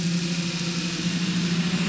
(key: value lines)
label: anthrophony, boat engine
recorder: SoundTrap 500